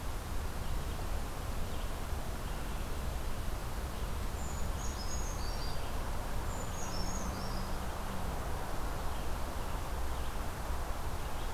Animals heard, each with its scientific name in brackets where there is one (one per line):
Red-eyed Vireo (Vireo olivaceus)
Brown Creeper (Certhia americana)